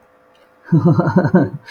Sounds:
Laughter